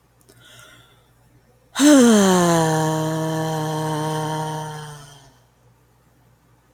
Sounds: Sigh